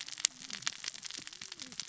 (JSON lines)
{"label": "biophony, cascading saw", "recorder": "SoundTrap 600 or HydroMoth"}